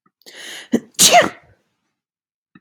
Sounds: Sneeze